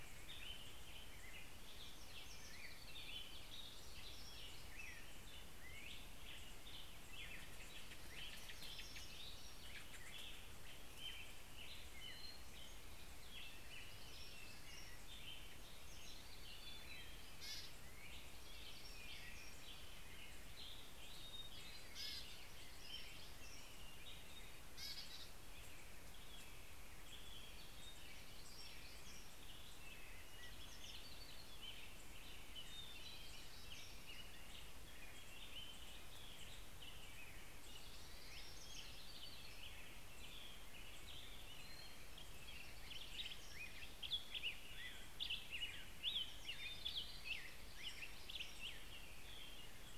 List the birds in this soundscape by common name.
American Robin, Hermit Warbler, Hermit Thrush, Black-headed Grosbeak